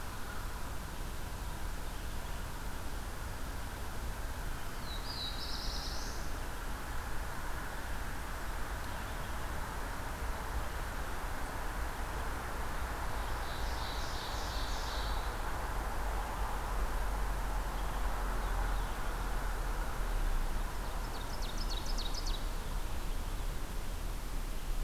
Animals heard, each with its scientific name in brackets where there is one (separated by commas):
Ovenbird (Seiurus aurocapilla), Black-throated Blue Warbler (Setophaga caerulescens)